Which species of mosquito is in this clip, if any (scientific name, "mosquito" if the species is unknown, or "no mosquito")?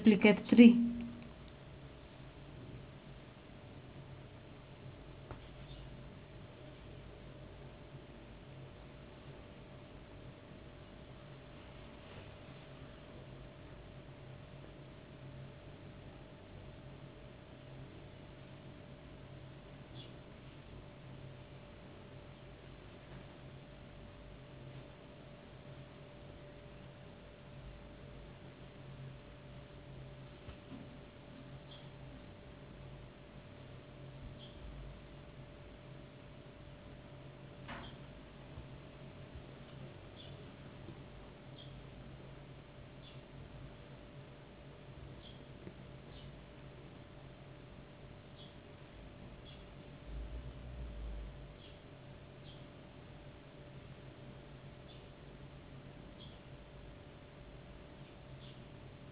no mosquito